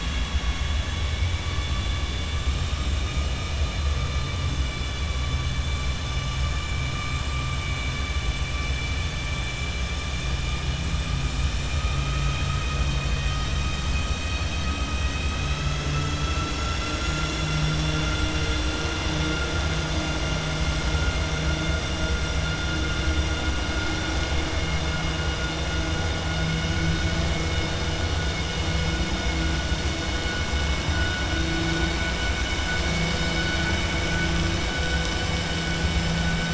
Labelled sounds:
11.6	12.8	vessel noise, 1.3 to 4.3 kHz

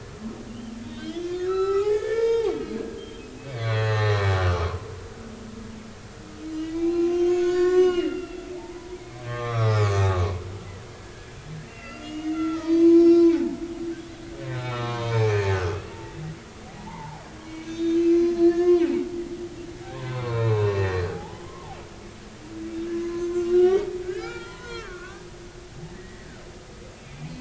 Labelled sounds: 0.5	3.2	humpback whale, 0.80 to 5.1 kHz
3.6	4.9	humpback whale, 0.80 to 4.4 kHz
6.5	10.4	humpback whale, 0.83 to 7.4 kHz
10.9	13.6	humpback whale, 0.80 to 6.5 kHz
14.5	15.5	humpback whale, 0.80 to 3.8 kHz
16.8	18.9	humpback whale, 0.80 to 6.5 kHz
19.9	21.5	humpback whale, 0.80 to 3.9 kHz
23.0	25.3	humpback whale, 0.86 to 6.4 kHz
26.0	26.3	humpback whale, 1.8 to 2.0 kHz

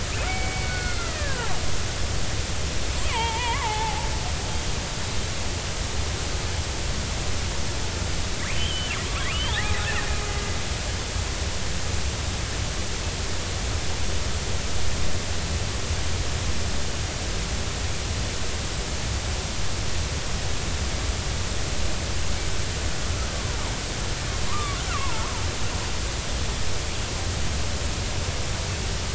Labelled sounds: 0.3	1.5	killer whale, Bigg's (transient), 0.80 to 4.5 kHz
3.1	4.1	killer whale, Bigg's (transient), 0.80 to 3.3 kHz
8.5	8.9	killer whale, Bigg's (transient), 2.9 to 3.3 kHz
9.3	9.8	killer whale, Bigg's (transient), 0.80 to 4.0 kHz
23.3	25.3	killer whale, Bigg's (transient), 0.83 to 1.5 kHz

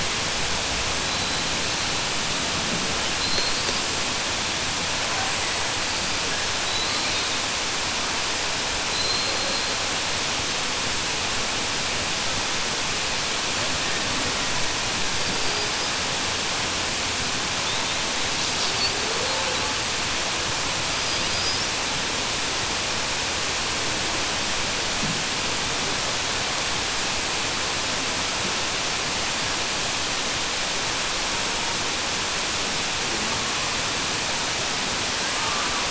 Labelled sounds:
8.8	9.6	killer whale, southern resident, 3.8 to 4.9 kHz

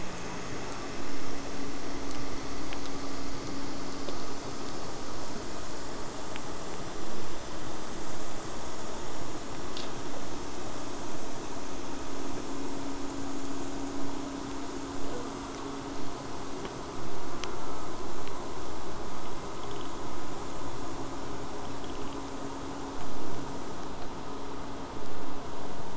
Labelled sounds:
15.1	15.9	killer whale, southern resident, J pod, buzz, 7.9 to 8.0 kHz

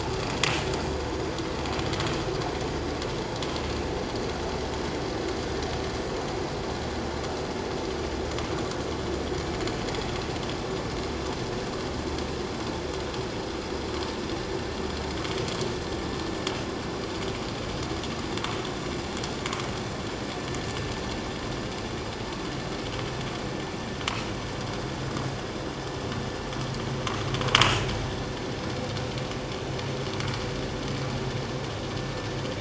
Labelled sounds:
27.6	27.9	vessel noise, 2.5 to 2.7 kHz

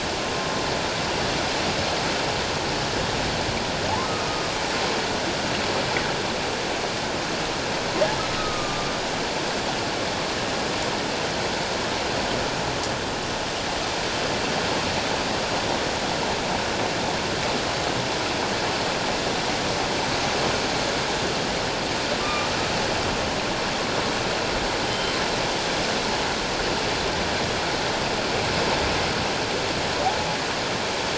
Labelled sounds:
4.3	4.5	humpback whale, 1.1 to 1.3 kHz
8.4	8.9	humpback whale, 1.1 to 1.3 kHz
22.2	22.5	humpback whale, 1.1 to 1.2 kHz
24.8	25.1	humpback whale, 3.0 to 3.2 kHz

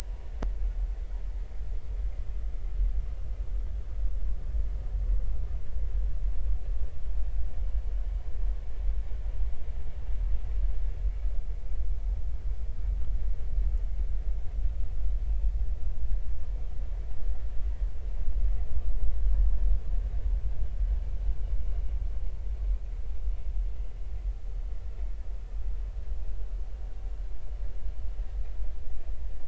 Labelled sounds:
0.0	0.3	vessel noise, 0.80 to 0.99 kHz

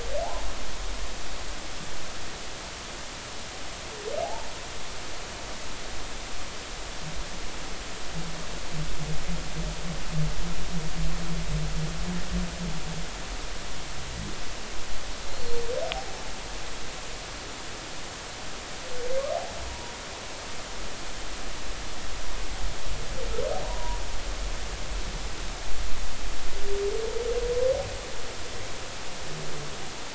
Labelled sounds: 4.2	4.5	humpback whale, 0.80 to 0.96 kHz
19.7	19.9	humpback whale, 0.90 to 0.99 kHz
23.6	24.0	humpback whale, 0.90 to 1.1 kHz

